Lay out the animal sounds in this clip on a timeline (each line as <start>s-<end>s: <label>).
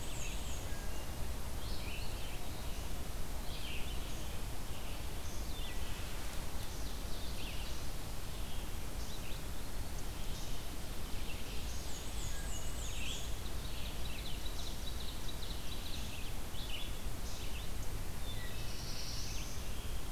0.0s-0.9s: Black-and-white Warbler (Mniotilta varia)
0.0s-19.5s: Red-eyed Vireo (Vireo olivaceus)
0.4s-1.2s: Wood Thrush (Hylocichla mustelina)
6.2s-7.8s: Ovenbird (Seiurus aurocapilla)
9.1s-10.1s: Eastern Wood-Pewee (Contopus virens)
10.9s-12.5s: Ovenbird (Seiurus aurocapilla)
11.5s-13.5s: Black-and-white Warbler (Mniotilta varia)
13.4s-16.5s: Ovenbird (Seiurus aurocapilla)
17.9s-19.0s: Wood Thrush (Hylocichla mustelina)
18.1s-19.8s: Black-throated Blue Warbler (Setophaga caerulescens)